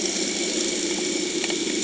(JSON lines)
{"label": "anthrophony, boat engine", "recorder": "HydroMoth"}